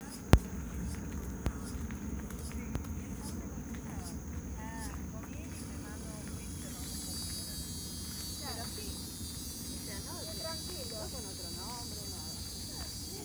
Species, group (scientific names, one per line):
Acanthoventris drewseni
Cicadidae